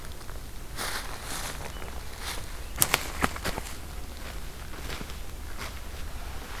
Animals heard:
American Robin (Turdus migratorius)

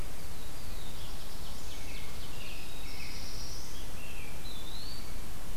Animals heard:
American Robin (Turdus migratorius), Black-throated Blue Warbler (Setophaga caerulescens), Eastern Wood-Pewee (Contopus virens)

